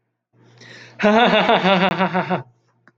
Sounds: Laughter